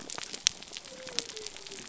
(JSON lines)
{"label": "biophony", "recorder": "SoundTrap 300"}